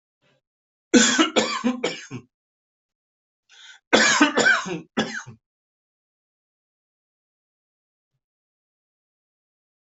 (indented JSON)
{
  "expert_labels": [
    {
      "quality": "good",
      "cough_type": "dry",
      "dyspnea": false,
      "wheezing": false,
      "stridor": false,
      "choking": false,
      "congestion": false,
      "nothing": true,
      "diagnosis": "COVID-19",
      "severity": "mild"
    }
  ]
}